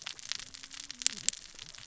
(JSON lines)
{"label": "biophony, cascading saw", "recorder": "SoundTrap 600 or HydroMoth"}